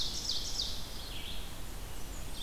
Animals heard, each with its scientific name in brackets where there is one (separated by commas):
Ovenbird (Seiurus aurocapilla), Blackburnian Warbler (Setophaga fusca), Red-eyed Vireo (Vireo olivaceus)